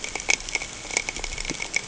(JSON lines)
{"label": "ambient", "recorder": "HydroMoth"}